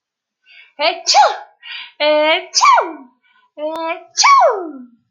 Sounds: Sneeze